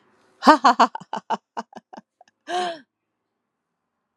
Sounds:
Laughter